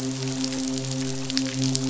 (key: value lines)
label: biophony, midshipman
recorder: SoundTrap 500